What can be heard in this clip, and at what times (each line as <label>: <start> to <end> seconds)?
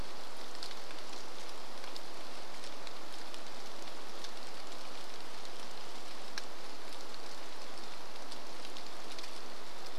rain: 0 to 10 seconds
Varied Thrush song: 8 to 10 seconds